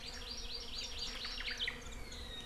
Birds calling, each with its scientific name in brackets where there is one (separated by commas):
Hawaii Amakihi (Chlorodrepanis virens), Omao (Myadestes obscurus)